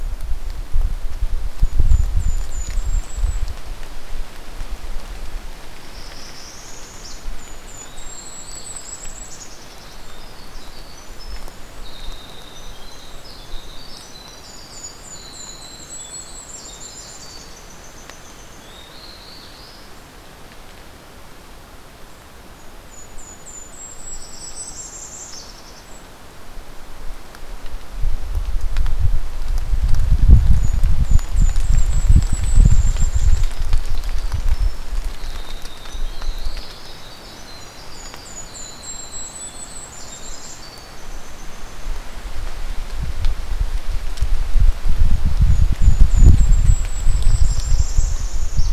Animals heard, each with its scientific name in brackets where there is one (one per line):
Northern Parula (Setophaga americana)
Black-throated Blue Warbler (Setophaga caerulescens)
Winter Wren (Troglodytes hiemalis)
Golden-crowned Kinglet (Regulus satrapa)